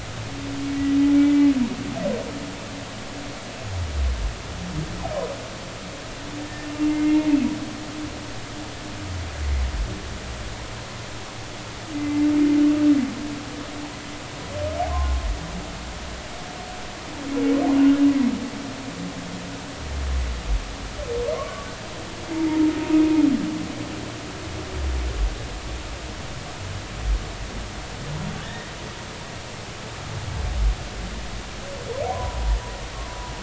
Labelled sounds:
6.9	7.3	humpback whale, 2.0 to 2.2 kHz
11.9	12.2	humpback whale, 2.0 to 2.1 kHz
14.9	15.2	humpback whale, 0.99 to 1.1 kHz
21.3	21.7	humpback whale, 0.99 to 1.2 kHz
28.4	28.7	humpback whale, 1.7 to 2.0 kHz
32.1	32.4	humpback whale, 0.93 to 1.1 kHz

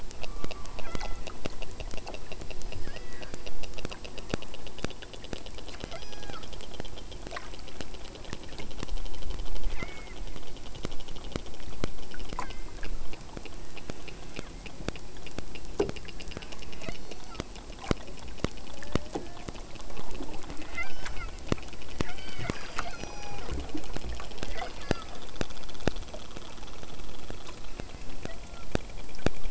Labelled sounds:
0.1	1.3	killer whale, southern Alaska resident, 0.81 to 3.7 kHz
2.6	3.4	killer whale, southern Alaska resident, 1.4 to 5.1 kHz
5.9	6.5	killer whale, southern Alaska resident, 0.44 to 6.9 kHz
9.8	10.2	killer whale, southern Alaska resident, 1.1 to 7.6 kHz
12.3	12.9	killer whale, southern Alaska resident, 1.0 to 3.4 kHz
16.7	17.5	killer whale, southern Alaska resident, 3.3 to 6.2 kHz
18.7	19.6	killer whale, southern Alaska resident, 0.42 to 2.0 kHz
20.7	21.3	killer whale, southern Alaska resident, 0.57 to 6.2 kHz
22.0	23.5	killer whale, southern Alaska resident, 0.57 to 6.1 kHz
24.4	25.3	killer whale, southern Alaska resident, 0.64 to 6.4 kHz
28.2	28.7	killer whale, southern Alaska resident, 0.41 to 2.0 kHz

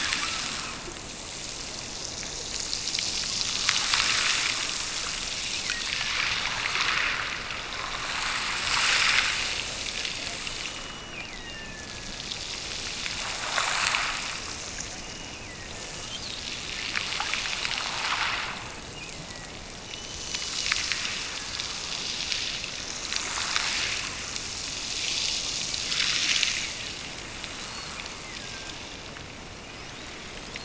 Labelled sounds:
10.5	12.3	killer whale, Bigg's (transient), Gulf of Alaska transient, 1.5 to 3.0 kHz
14.9	16.2	killer whale, Bigg's (transient), Gulf of Alaska transient, 1.5 to 2.9 kHz
18.6	19.6	killer whale, Bigg's (transient), Gulf of Alaska transient, 1.7 to 3.2 kHz
19.9	21.7	killer whale, Bigg's (transient), Gulf of Alaska transient, 1.5 to 3.1 kHz
27.6	28.8	killer whale, Bigg's (transient), Gulf of Alaska transient, 1.4 to 4.3 kHz

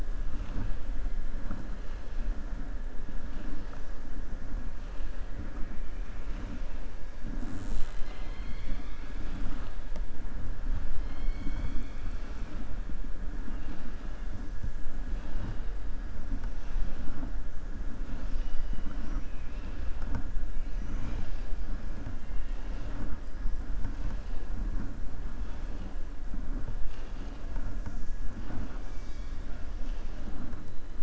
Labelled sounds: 26.8	27.4	killer whale, southern resident, 1.6 to 5.4 kHz

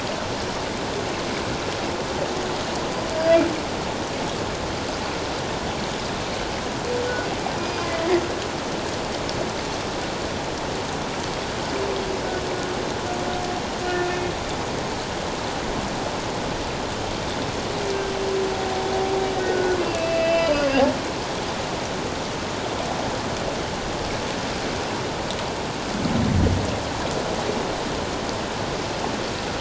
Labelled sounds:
7.6	7.9	humpback whale, 2.4 to 5.0 kHz
13.9	14.3	humpback whale, 1.4 to 2.6 kHz
19.4	20.7	humpback whale, 1.4 to 3.1 kHz

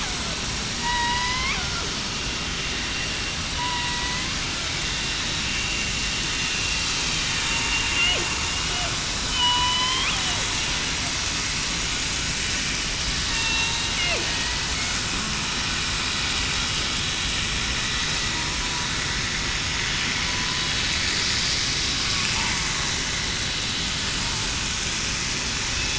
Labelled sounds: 0.7	1.6	killer whale, southern resident, 0.91 to 5.0 kHz
3.6	4.1	killer whale, southern resident, 0.91 to 1.0 kHz
9.3	10.1	killer whale, southern resident, 0.89 to 3.4 kHz
13.3	13.8	killer whale, southern resident, 0.89 to 0.98 kHz
14.3	14.7	killer whale, southern resident, 1.9 to 2.0 kHz

